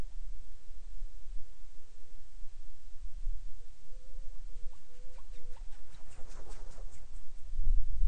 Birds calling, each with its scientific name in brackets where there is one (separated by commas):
Hawaiian Petrel (Pterodroma sandwichensis)